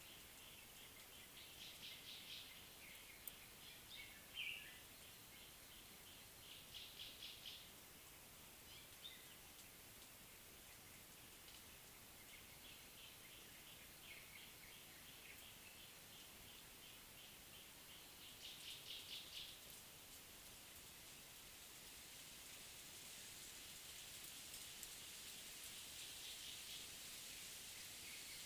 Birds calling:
Cape Robin-Chat (Cossypha caffra), Gray-backed Camaroptera (Camaroptera brevicaudata)

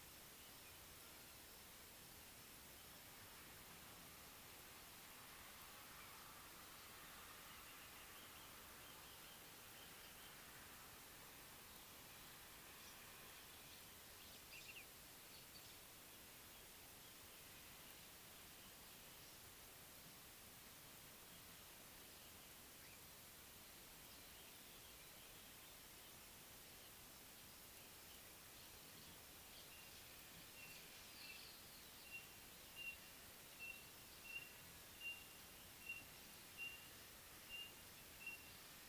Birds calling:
White-browed Robin-Chat (Cossypha heuglini), Common Bulbul (Pycnonotus barbatus)

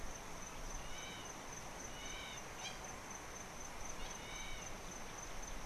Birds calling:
Hamerkop (Scopus umbretta)

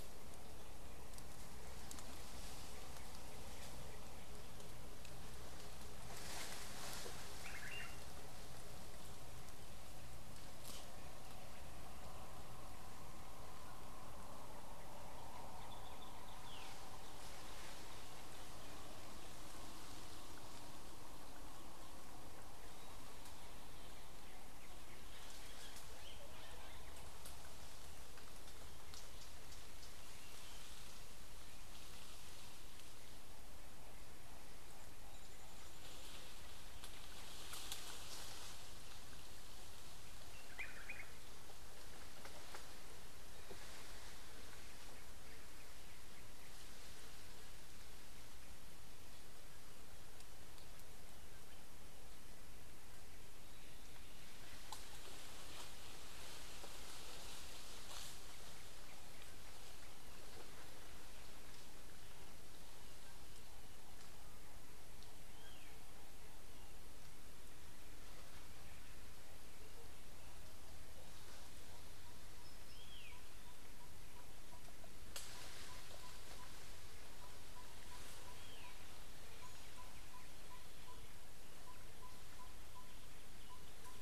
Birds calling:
Common Bulbul (Pycnonotus barbatus), Yellow-rumped Tinkerbird (Pogoniulus bilineatus)

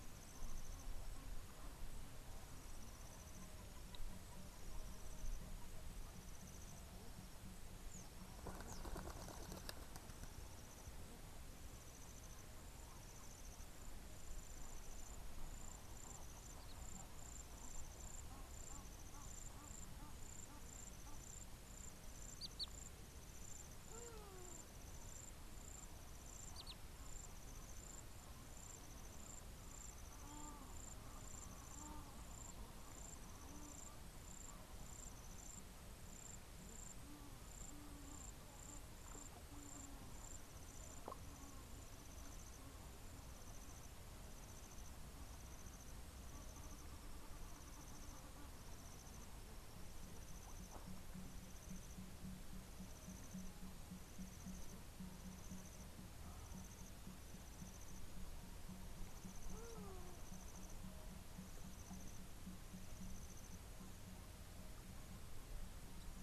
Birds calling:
Hadada Ibis (Bostrychia hagedash), Egyptian Goose (Alopochen aegyptiaca)

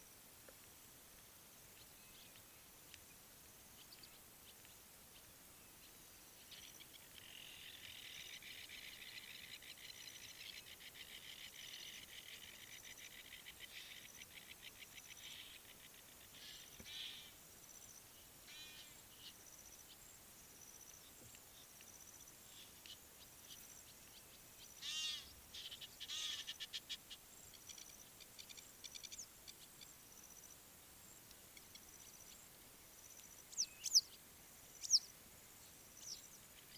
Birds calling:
Blacksmith Lapwing (Vanellus armatus), African Jacana (Actophilornis africanus), Egyptian Goose (Alopochen aegyptiaca), Western Yellow Wagtail (Motacilla flava)

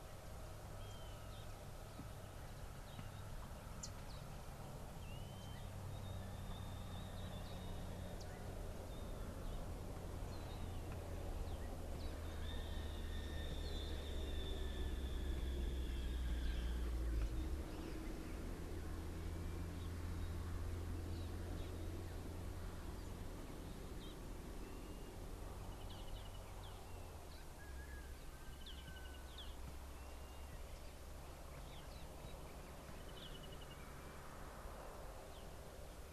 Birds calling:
Blue-naped Mousebird (Urocolius macrourus), Brubru (Nilaus afer)

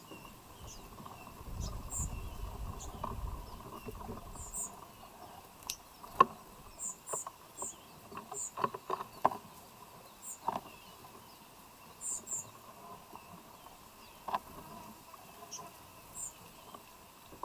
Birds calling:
White-eyed Slaty-Flycatcher (Melaenornis fischeri), Kikuyu White-eye (Zosterops kikuyuensis)

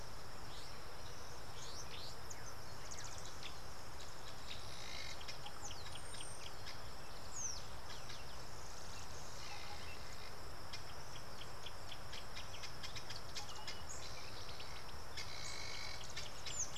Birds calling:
Helmeted Guineafowl (Numida meleagris), Variable Sunbird (Cinnyris venustus)

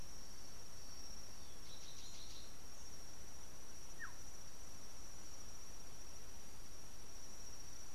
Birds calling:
Cinnamon Bracken-Warbler (Bradypterus cinnamomeus), Black-tailed Oriole (Oriolus percivali)

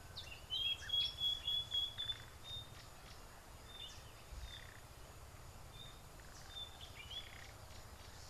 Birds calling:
Thrush Nightingale (Luscinia luscinia)

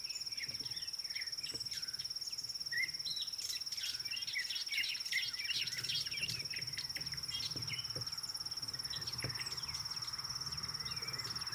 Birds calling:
Fork-tailed Drongo (Dicrurus adsimilis)

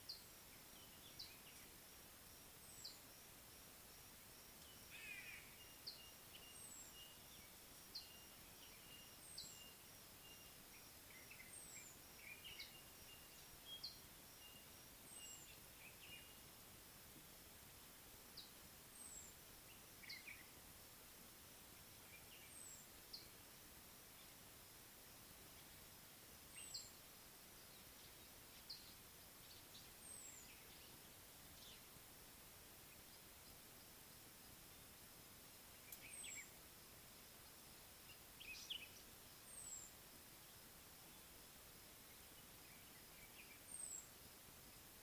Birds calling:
White-browed Robin-Chat (Cossypha heuglini), Common Bulbul (Pycnonotus barbatus), White-bellied Go-away-bird (Corythaixoides leucogaster)

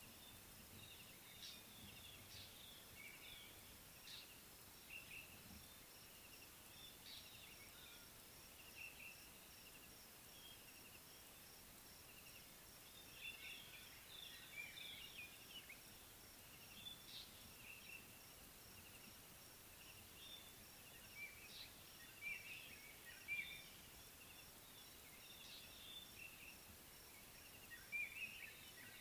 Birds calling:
White-browed Robin-Chat (Cossypha heuglini), Fork-tailed Drongo (Dicrurus adsimilis)

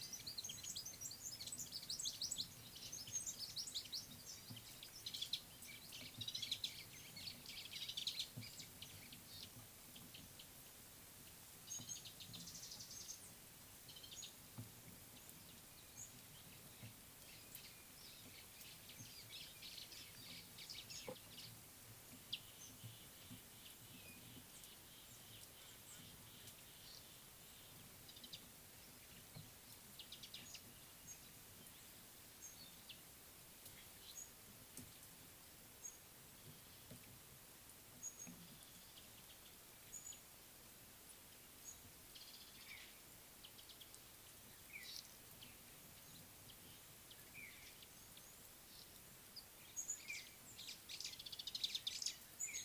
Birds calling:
White-browed Sparrow-Weaver (Plocepasser mahali), Red-rumped Swallow (Cecropis daurica), Scarlet-chested Sunbird (Chalcomitra senegalensis), Mariqua Sunbird (Cinnyris mariquensis)

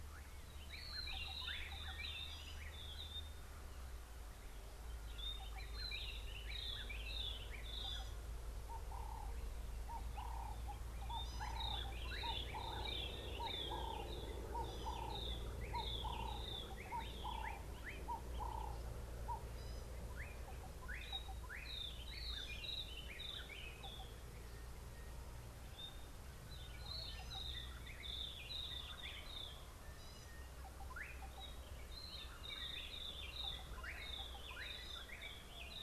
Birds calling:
Gray-backed Camaroptera (Camaroptera brevicaudata), White-browed Robin-Chat (Cossypha heuglini), Slate-colored Boubou (Laniarius funebris), Ring-necked Dove (Streptopelia capicola), Sulphur-breasted Bushshrike (Telophorus sulfureopectus)

